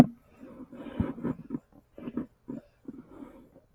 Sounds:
Sniff